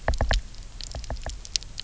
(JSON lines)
{"label": "biophony, knock", "recorder": "SoundTrap 300"}